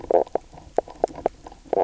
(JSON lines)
{"label": "biophony, knock croak", "recorder": "SoundTrap 300"}